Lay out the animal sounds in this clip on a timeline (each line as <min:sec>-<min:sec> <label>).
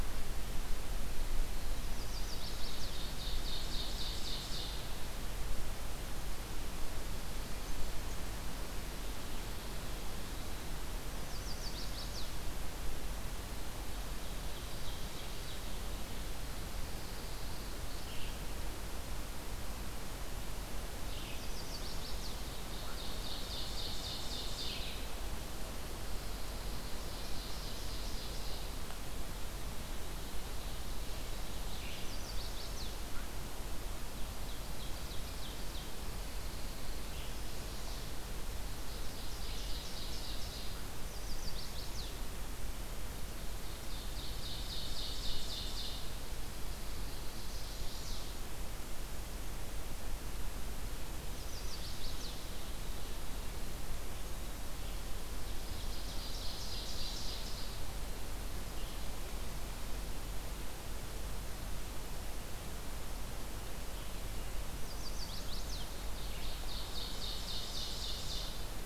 0:01.9-0:03.0 Chestnut-sided Warbler (Setophaga pensylvanica)
0:02.9-0:04.9 Ovenbird (Seiurus aurocapilla)
0:11.1-0:12.4 Chestnut-sided Warbler (Setophaga pensylvanica)
0:14.1-0:15.8 Ovenbird (Seiurus aurocapilla)
0:16.7-0:17.9 Pine Warbler (Setophaga pinus)
0:17.8-0:25.0 Red-eyed Vireo (Vireo olivaceus)
0:21.3-0:22.5 Chestnut-sided Warbler (Setophaga pensylvanica)
0:22.3-0:25.0 Ovenbird (Seiurus aurocapilla)
0:26.7-0:28.9 Ovenbird (Seiurus aurocapilla)
0:31.9-0:33.2 Chestnut-sided Warbler (Setophaga pensylvanica)
0:34.0-0:35.9 Ovenbird (Seiurus aurocapilla)
0:35.7-0:37.1 Pine Warbler (Setophaga pinus)
0:38.4-0:40.9 Ovenbird (Seiurus aurocapilla)
0:41.0-0:42.3 Chestnut-sided Warbler (Setophaga pensylvanica)
0:43.4-0:46.1 Ovenbird (Seiurus aurocapilla)
0:46.5-0:48.1 Pine Warbler (Setophaga pinus)
0:47.2-0:48.4 Chestnut-sided Warbler (Setophaga pensylvanica)
0:51.3-0:52.5 Chestnut-sided Warbler (Setophaga pensylvanica)
0:55.1-0:58.0 Ovenbird (Seiurus aurocapilla)
1:04.6-1:06.1 Chestnut-sided Warbler (Setophaga pensylvanica)
1:05.9-1:08.9 Ovenbird (Seiurus aurocapilla)